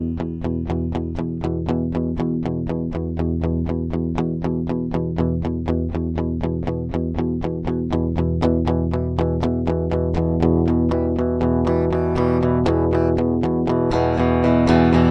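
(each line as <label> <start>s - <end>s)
An electric guitar is played rhythmically and gradually increases in volume indoors. 0.0s - 15.1s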